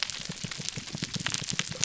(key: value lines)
label: biophony, pulse
recorder: SoundTrap 300